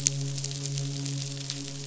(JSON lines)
{"label": "biophony, midshipman", "recorder": "SoundTrap 500"}